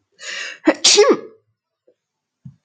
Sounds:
Sneeze